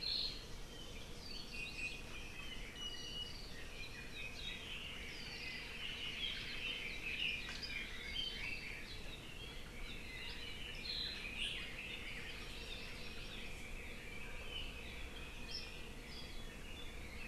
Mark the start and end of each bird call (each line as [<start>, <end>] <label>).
[1.53, 2.03] Apapane (Himatione sanguinea)
[2.73, 3.43] Apapane (Himatione sanguinea)
[5.73, 8.93] Red-billed Leiothrix (Leiothrix lutea)
[10.03, 12.13] Red-billed Leiothrix (Leiothrix lutea)
[12.13, 13.43] Hawaii Amakihi (Chlorodrepanis virens)